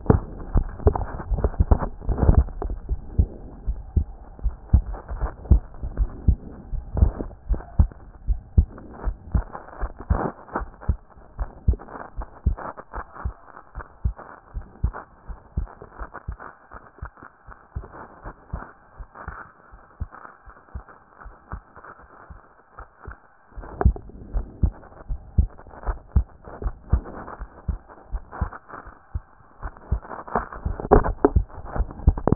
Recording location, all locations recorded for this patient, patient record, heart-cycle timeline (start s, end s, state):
pulmonary valve (PV)
pulmonary valve (PV)+tricuspid valve (TV)+mitral valve (MV)
#Age: Child
#Sex: Male
#Height: 123.0 cm
#Weight: 22.9 kg
#Pregnancy status: False
#Murmur: Absent
#Murmur locations: nan
#Most audible location: nan
#Systolic murmur timing: nan
#Systolic murmur shape: nan
#Systolic murmur grading: nan
#Systolic murmur pitch: nan
#Systolic murmur quality: nan
#Diastolic murmur timing: nan
#Diastolic murmur shape: nan
#Diastolic murmur grading: nan
#Diastolic murmur pitch: nan
#Diastolic murmur quality: nan
#Outcome: Normal
#Campaign: 2014 screening campaign
0.00	2.90	unannotated
2.90	3.00	S1
3.00	3.16	systole
3.16	3.28	S2
3.28	3.68	diastole
3.68	3.78	S1
3.78	3.94	systole
3.94	4.06	S2
4.06	4.44	diastole
4.44	4.54	S1
4.54	4.72	systole
4.72	4.84	S2
4.84	5.20	diastole
5.20	5.32	S1
5.32	5.50	systole
5.50	5.60	S2
5.60	5.98	diastole
5.98	6.10	S1
6.10	6.28	systole
6.28	6.40	S2
6.40	6.73	diastole
6.73	6.84	S1
6.84	6.97	systole
6.97	7.10	S2
7.10	7.50	diastole
7.50	7.60	S1
7.60	7.78	systole
7.78	7.90	S2
7.90	8.28	diastole
8.28	8.40	S1
8.40	8.58	systole
8.58	8.68	S2
8.68	9.04	diastole
9.04	9.16	S1
9.16	9.34	systole
9.34	9.44	S2
9.44	9.80	diastole
9.80	9.92	S1
9.92	10.10	systole
10.10	10.21	S2
10.21	10.56	diastole
10.56	10.68	S1
10.68	10.88	systole
10.88	10.98	S2
10.98	11.38	diastole
11.38	11.50	S1
11.50	11.66	systole
11.66	11.78	S2
11.78	12.18	diastole
12.18	12.28	S1
12.28	12.46	systole
12.46	12.58	S2
12.58	12.96	diastole
12.96	13.06	S1
13.06	13.24	systole
13.24	13.34	S2
13.34	13.76	diastole
13.76	13.86	S1
13.86	14.04	systole
14.04	14.14	S2
14.14	14.54	diastole
14.54	14.64	S1
14.64	14.82	systole
14.82	14.94	S2
14.94	15.30	diastole
15.30	15.38	S1
15.38	15.56	systole
15.56	15.68	S2
15.68	16.00	diastole
16.00	32.35	unannotated